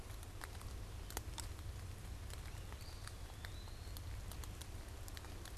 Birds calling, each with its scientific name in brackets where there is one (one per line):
Eastern Wood-Pewee (Contopus virens)